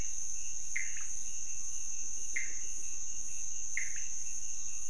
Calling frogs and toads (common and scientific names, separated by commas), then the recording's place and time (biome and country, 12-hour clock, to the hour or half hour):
Pithecopus azureus
Cerrado, Brazil, ~2am